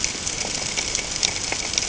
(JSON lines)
{"label": "ambient", "recorder": "HydroMoth"}